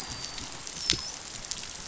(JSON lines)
{"label": "biophony, dolphin", "recorder": "SoundTrap 500"}